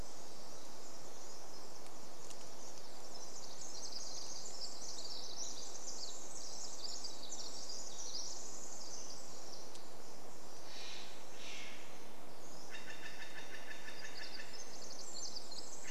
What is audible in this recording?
Pacific Wren song, Steller's Jay call